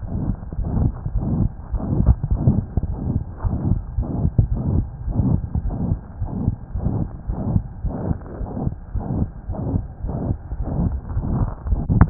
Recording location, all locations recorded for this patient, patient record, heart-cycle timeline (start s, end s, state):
aortic valve (AV)
aortic valve (AV)+pulmonary valve (PV)+tricuspid valve (TV)+mitral valve (MV)
#Age: Child
#Sex: Male
#Height: 98.0 cm
#Weight: 13.9 kg
#Pregnancy status: False
#Murmur: Present
#Murmur locations: aortic valve (AV)+mitral valve (MV)+pulmonary valve (PV)+tricuspid valve (TV)
#Most audible location: pulmonary valve (PV)
#Systolic murmur timing: Holosystolic
#Systolic murmur shape: Crescendo
#Systolic murmur grading: III/VI or higher
#Systolic murmur pitch: High
#Systolic murmur quality: Harsh
#Diastolic murmur timing: nan
#Diastolic murmur shape: nan
#Diastolic murmur grading: nan
#Diastolic murmur pitch: nan
#Diastolic murmur quality: nan
#Outcome: Abnormal
#Campaign: 2015 screening campaign
0.00	2.87	unannotated
2.87	3.00	S1
3.00	3.08	systole
3.08	3.22	S2
3.22	3.40	diastole
3.40	3.55	S1
3.55	3.66	systole
3.66	3.78	S2
3.78	3.96	diastole
3.96	4.04	S1
4.04	4.23	systole
4.23	4.31	S2
4.31	4.49	diastole
4.49	4.58	S1
4.58	4.73	systole
4.73	4.82	S2
4.82	5.06	diastole
5.06	5.16	S1
5.16	5.32	systole
5.32	5.40	S2
5.40	5.62	diastole
5.62	5.74	S1
5.74	5.87	systole
5.87	6.00	S2
6.00	6.19	diastole
6.19	6.26	S1
6.26	6.42	systole
6.42	6.54	S2
6.54	6.73	diastole
6.73	6.81	S1
6.81	6.94	systole
6.94	7.06	S2
7.06	7.26	diastole
7.26	7.37	S1
7.37	7.52	systole
7.52	7.62	S2
7.62	7.83	diastole
7.83	7.92	S1
7.92	8.06	systole
8.06	8.16	S2
8.16	8.39	diastole
8.39	8.48	S1
8.48	8.64	systole
8.64	8.71	S2
8.71	8.93	diastole
8.93	9.04	S1
9.04	9.19	systole
9.19	9.28	S2
9.28	9.47	diastole
9.47	9.56	S1
9.56	9.73	systole
9.73	9.82	S2
9.82	10.02	diastole
10.02	10.12	S1
10.12	10.24	systole
10.24	10.36	S2
10.36	10.58	diastole
10.58	10.68	S1
10.68	10.80	systole
10.80	10.90	S2
10.90	12.10	unannotated